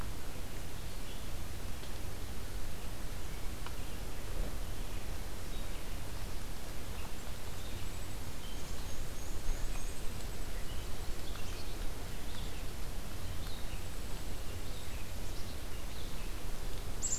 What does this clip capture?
Red-eyed Vireo, Black-capped Chickadee, Black-and-white Warbler